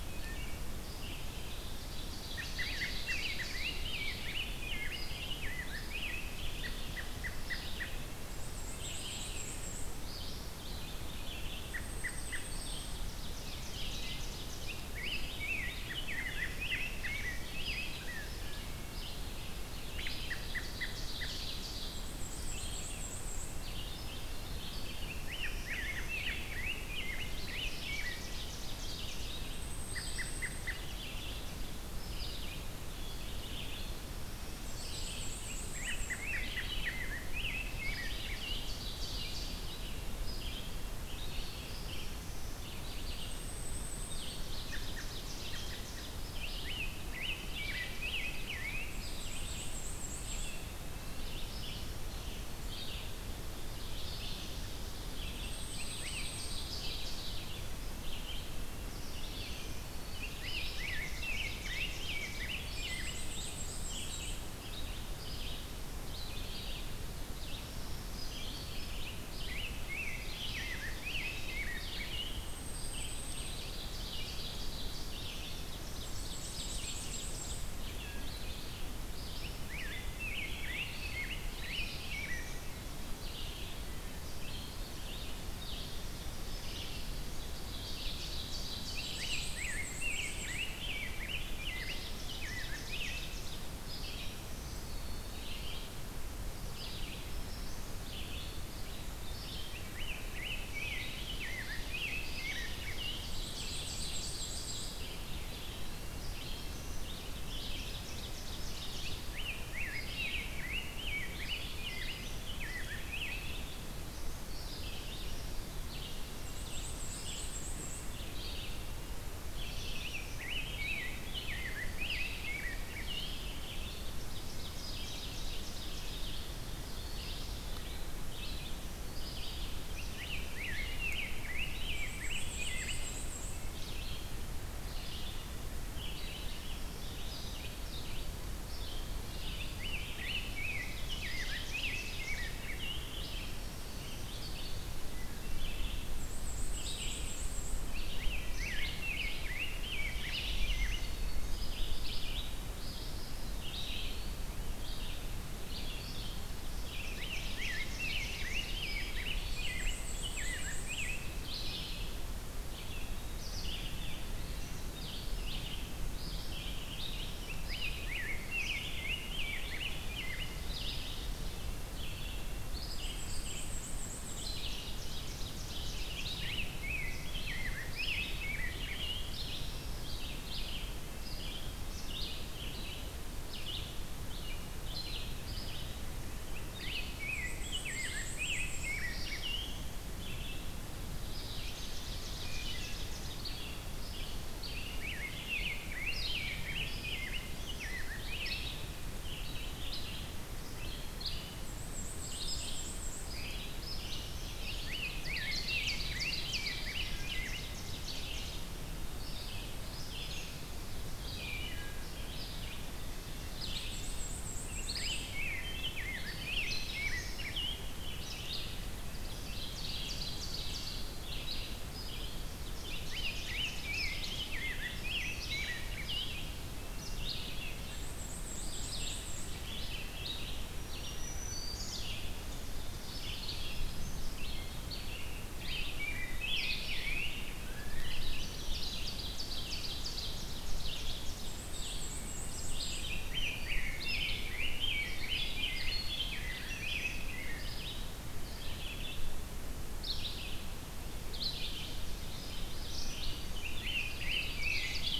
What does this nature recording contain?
Red-eyed Vireo, Ovenbird, American Robin, Rose-breasted Grosbeak, Black-and-white Warbler, unidentified call, Black-throated Blue Warbler, Black-throated Green Warbler, Eastern Wood-Pewee, Wood Thrush